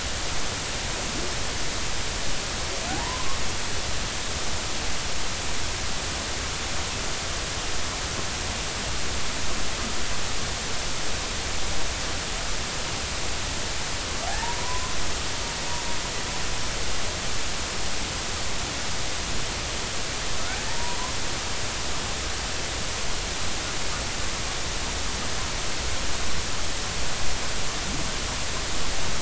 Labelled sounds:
2.9	3.4	humpback whale, 0.80 to 1.2 kHz
14.2	14.9	humpback whale, 0.80 to 1.1 kHz
20.7	21.0	humpback whale, 0.86 to 1.0 kHz

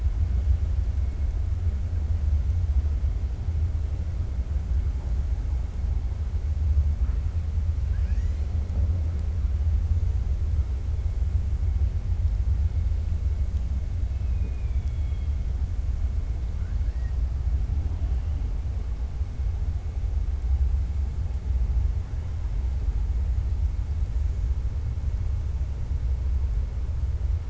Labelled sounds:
14.0	15.3	killer whale, 2.2 to 3.5 kHz
16.5	17.2	killer whale, 1.3 to 2.7 kHz

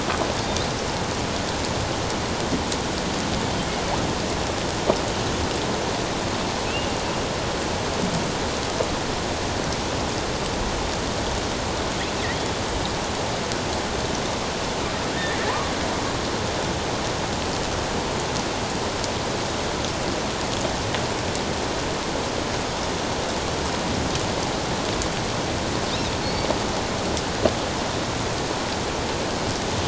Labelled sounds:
15.2	15.7	killer whale, offshore, 0.81 to 2.0 kHz
26.2	26.5	killer whale, offshore, 4.2 to 4.6 kHz

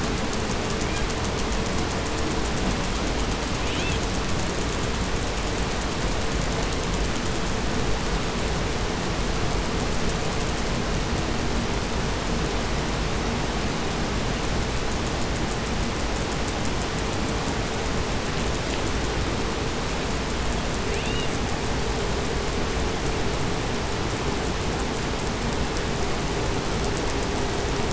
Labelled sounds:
0.8	1.1	killer whale, 0.87 to 3.6 kHz
3.6	4.2	killer whale, southern resident, 0.78 to 8.0 kHz
20.8	21.4	killer whale, southern resident, 1.1 to 8.0 kHz

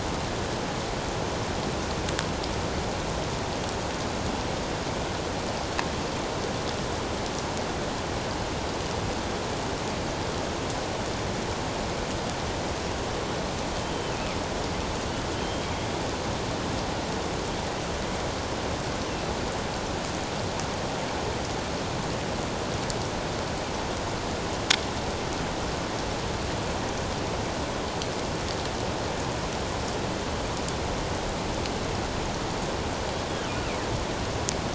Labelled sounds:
13.8	14.4	killer whale, northern resident, G clan, 2.1 to 3.2 kHz
15.4	15.7	killer whale, northern resident, G clan, 3.1 to 3.2 kHz

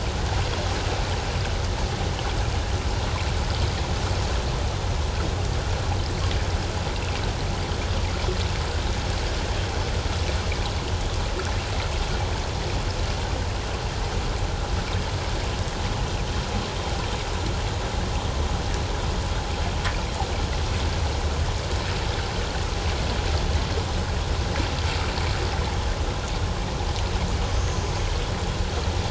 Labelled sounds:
27.6	27.8	killer whale, northern resident, 6.2 to 6.5 kHz

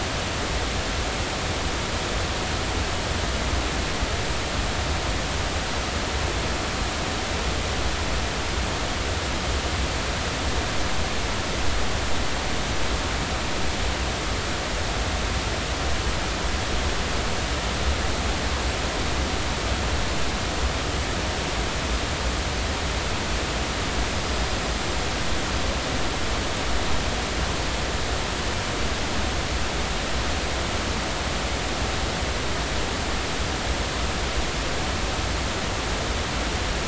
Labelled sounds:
24.1	24.6	small unidentified odontocete, 4.9 to 5.2 kHz

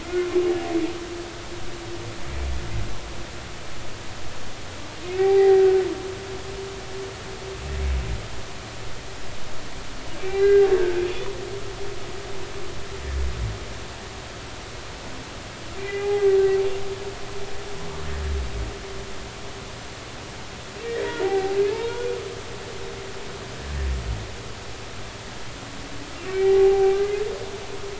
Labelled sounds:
0.0	0.3	humpback whale, 2.0 to 2.2 kHz
5.1	5.8	humpback whale, 0.80 to 2.4 kHz
10.2	11.0	humpback whale, 1.5 to 2.9 kHz
15.8	16.3	humpback whale, 0.80 to 2.5 kHz
20.8	22.1	humpback whale, 0.80 to 3.4 kHz
26.3	27.0	humpback whale, 0.80 to 2.4 kHz

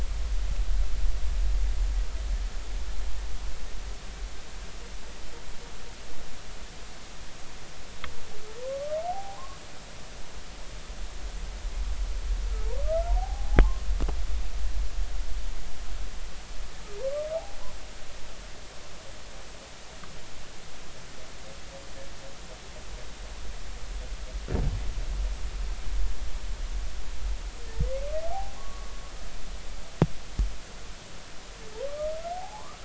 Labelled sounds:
9.1	9.6	humpback whale, 0.80 to 1.2 kHz
12.8	13.6	humpback whale, 0.80 to 1.4 kHz
28.2	28.9	humpback whale, 0.80 to 1.2 kHz
32.3	32.8	humpback whale, 0.80 to 1.3 kHz

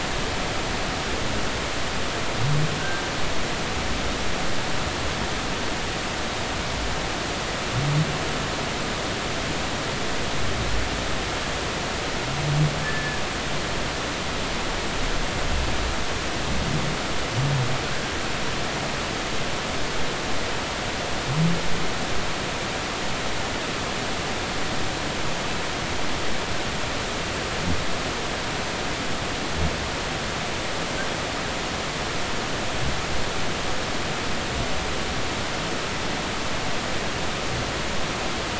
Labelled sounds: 2.8	3.0	humpback whale, 1.5 to 1.6 kHz
12.8	13.2	humpback whale, 1.6 to 1.8 kHz

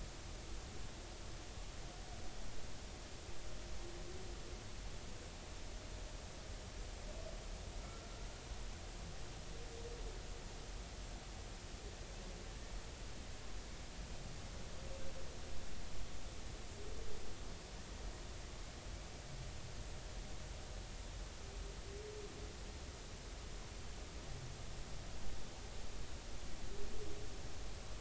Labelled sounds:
7.8	8.1	humpback whale, 1.3 to 1.4 kHz

